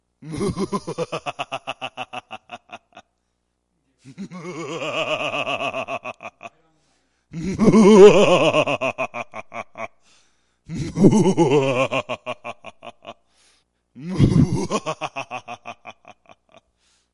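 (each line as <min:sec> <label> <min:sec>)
0:00.2 A man laughs repeatedly. 0:03.0
0:04.0 A man laughs loudly and repeatedly. 0:06.6
0:07.3 A man laughs repeatedly, growing louder. 0:10.0
0:10.7 A man laughs increasingly loudly indoors. 0:13.2
0:14.0 A man laughs repeatedly and continuously indoors. 0:16.7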